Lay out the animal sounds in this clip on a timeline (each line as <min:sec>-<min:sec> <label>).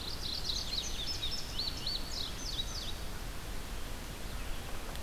0:00.0-0:00.9 Mourning Warbler (Geothlypis philadelphia)
0:00.0-0:05.0 Red-eyed Vireo (Vireo olivaceus)
0:00.2-0:03.0 Indigo Bunting (Passerina cyanea)
0:03.9-0:05.0 Yellow-bellied Sapsucker (Sphyrapicus varius)